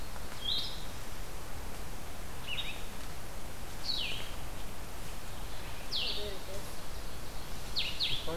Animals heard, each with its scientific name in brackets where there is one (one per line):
Blue-headed Vireo (Vireo solitarius)